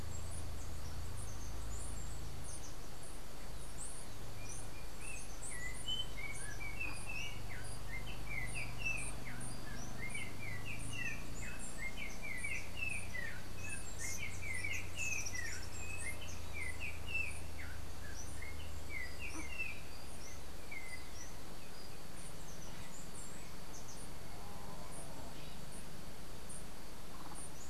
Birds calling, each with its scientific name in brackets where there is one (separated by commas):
Yellow-backed Oriole (Icterus chrysater), Chestnut-capped Brushfinch (Arremon brunneinucha), unidentified bird